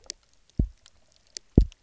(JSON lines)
{"label": "biophony, double pulse", "recorder": "SoundTrap 300"}